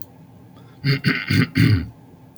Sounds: Throat clearing